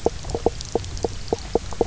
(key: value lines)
label: biophony, knock croak
recorder: SoundTrap 300